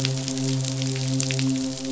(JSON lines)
{"label": "biophony, midshipman", "recorder": "SoundTrap 500"}